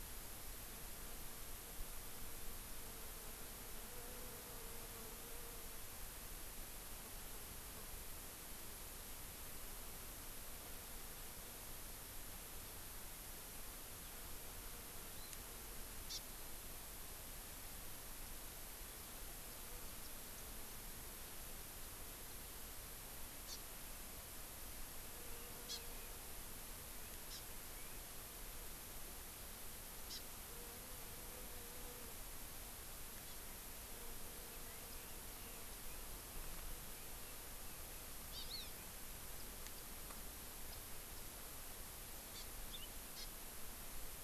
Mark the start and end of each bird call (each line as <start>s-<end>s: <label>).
15.1s-15.3s: Hawaii Amakihi (Chlorodrepanis virens)
16.1s-16.2s: Hawaii Amakihi (Chlorodrepanis virens)
23.4s-23.6s: Hawaii Amakihi (Chlorodrepanis virens)
25.7s-25.8s: Hawaii Amakihi (Chlorodrepanis virens)
27.3s-27.4s: Hawaii Amakihi (Chlorodrepanis virens)
30.1s-30.2s: Hawaii Amakihi (Chlorodrepanis virens)
34.6s-37.9s: Red-billed Leiothrix (Leiothrix lutea)
38.3s-38.8s: Hawaii Amakihi (Chlorodrepanis virens)
42.3s-42.9s: Hawaii Amakihi (Chlorodrepanis virens)
43.2s-43.3s: Hawaii Amakihi (Chlorodrepanis virens)